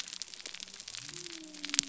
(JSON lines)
{"label": "biophony", "recorder": "SoundTrap 300"}